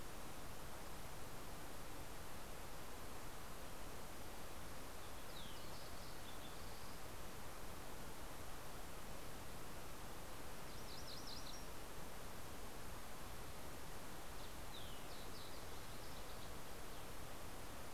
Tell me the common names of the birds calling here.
Fox Sparrow, MacGillivray's Warbler